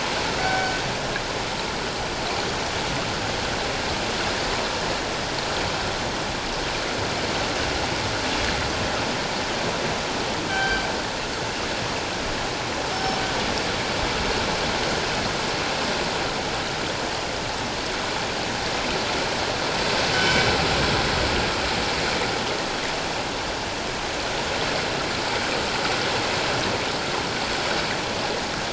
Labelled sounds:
0.4	0.8	killer whale, northern resident, G clan, 1.4 to 6.9 kHz
10.5	10.8	killer whale, northern resident, G clan, 1.5 to 3.2 kHz
12.9	13.2	killer whale, northern resident, G clan, 5.2 to 5.4 kHz
20.1	20.5	killer whale, northern resident, G clan, 1.5 to 3.1 kHz

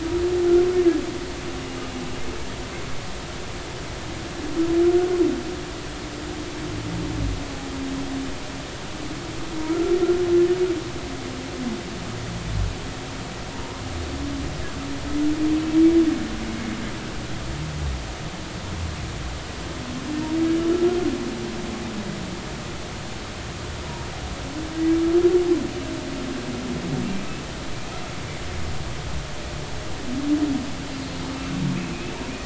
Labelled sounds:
9.7	9.9	humpback whale, 1.2 to 1.4 kHz

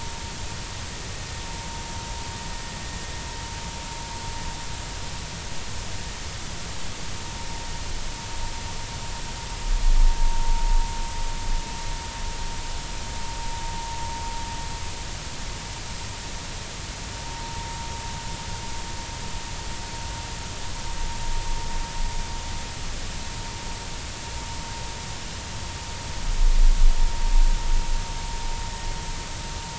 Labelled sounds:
17.2	17.5	vessel noise, 0.86 to 1.0 kHz

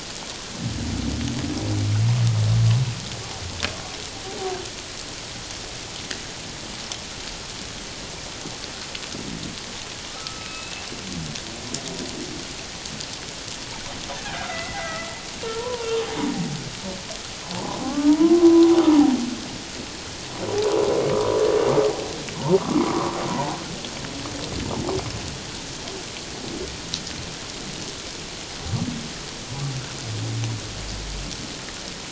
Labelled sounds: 10.1	10.9	humpback whale, 1.2 to 2.8 kHz
14.4	15.1	humpback whale, 1.2 to 2.2 kHz
15.6	15.9	humpback whale, 0.88 to 1.2 kHz
17.8	18.7	humpback whale, 0.88 to 1.3 kHz
22.9	23.6	humpback whale, 0.78 to 1.3 kHz

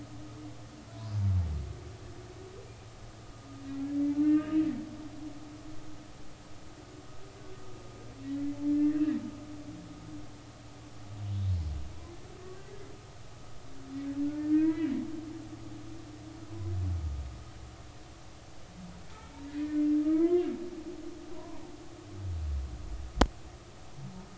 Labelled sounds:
1.1	1.3	humpback whale, 4.7 to 4.9 kHz
4.2	4.7	humpback whale, 1.4 to 2.9 kHz
8.6	9.2	humpback whale, 1.6 to 2.0 kHz
14.4	14.9	humpback whale, 0.93 to 2.4 kHz
19.1	20.5	humpback whale, 0.96 to 2.3 kHz
21.3	21.6	humpback whale, 0.83 to 1.1 kHz

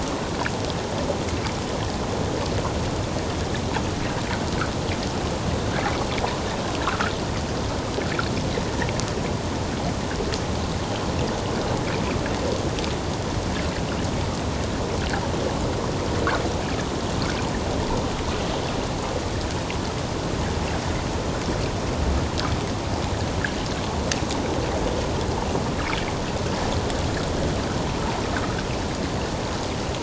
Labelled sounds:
6.8	7.1	water noise, 1.0 to 1.6 kHz

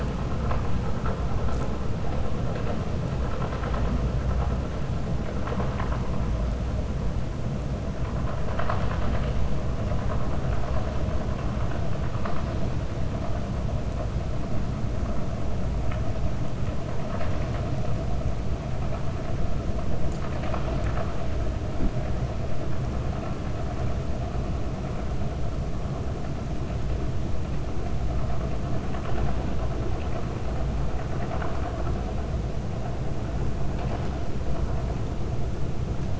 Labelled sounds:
8.4	9.4	vessel noise, 0.69 to 4.6 kHz
31.1	31.8	vessel noise, 0.66 to 2.9 kHz

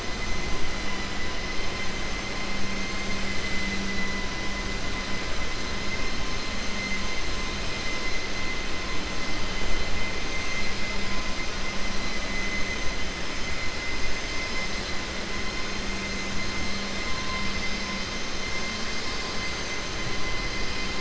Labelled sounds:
2.7	3.2	vessel noise, 1.7 to 3.1 kHz

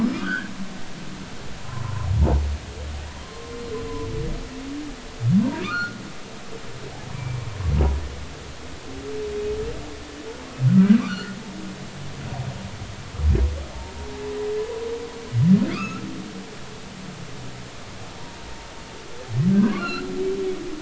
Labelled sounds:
0.2	0.5	humpback whale, 1.1 to 3.4 kHz
3.2	3.5	humpback whale, 0.99 to 1.1 kHz
5.6	6.0	humpback whale, 1.1 to 1.5 kHz
7.1	7.4	humpback whale, 2.2 to 2.4 kHz
11.0	11.4	humpback whale, 1.0 to 1.6 kHz
15.7	16.0	humpback whale, 1.1 to 2.8 kHz
19.7	20.1	humpback whale, 1.3 to 4.3 kHz

